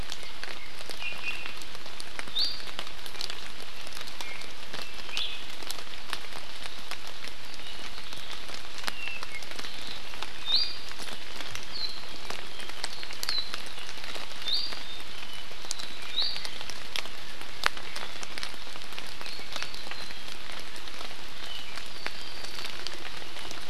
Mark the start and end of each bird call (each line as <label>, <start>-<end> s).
Iiwi (Drepanis coccinea), 1.0-1.6 s
Iiwi (Drepanis coccinea), 2.3-2.6 s
Iiwi (Drepanis coccinea), 4.2-4.5 s
Iiwi (Drepanis coccinea), 5.1-5.3 s
Apapane (Himatione sanguinea), 8.9-9.4 s
Iiwi (Drepanis coccinea), 10.4-10.9 s
Iiwi (Drepanis coccinea), 14.5-14.9 s
Apapane (Himatione sanguinea), 14.8-16.0 s
Iiwi (Drepanis coccinea), 16.1-16.5 s
Apapane (Himatione sanguinea), 19.2-20.3 s
Apapane (Himatione sanguinea), 21.4-22.9 s